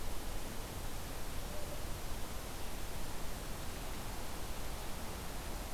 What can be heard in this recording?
forest ambience